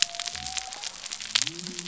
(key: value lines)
label: biophony
recorder: SoundTrap 300